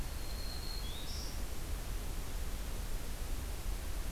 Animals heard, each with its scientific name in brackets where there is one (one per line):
Black-throated Green Warbler (Setophaga virens)